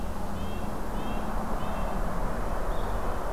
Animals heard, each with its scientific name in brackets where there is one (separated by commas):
Red-breasted Nuthatch (Sitta canadensis)